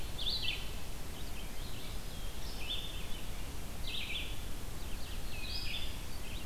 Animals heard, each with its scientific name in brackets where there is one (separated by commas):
Red-eyed Vireo (Vireo olivaceus)